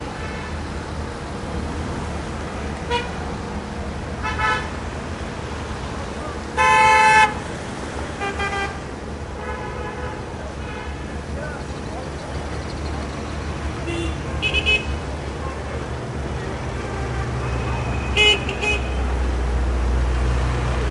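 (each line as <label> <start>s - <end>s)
Cars driving on a wet street gradually increase in volume toward the end. 0.0s - 20.9s
A car honks loudly once. 2.9s - 3.1s
A car horn honks repeatedly. 4.1s - 4.8s
A car honks loudly for a period of time. 6.5s - 7.4s
A car honks multiple times in the distance. 8.1s - 10.3s
A car honks repeatedly in the distance. 10.6s - 10.8s
A car horn sounds once in the distance. 13.8s - 14.3s
A car horn honks loudly multiple times. 14.4s - 15.0s
A car honks once in the distance. 15.3s - 15.6s
A car horn honks loudly multiple times. 18.1s - 18.9s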